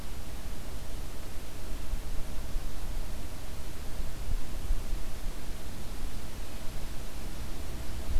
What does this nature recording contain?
forest ambience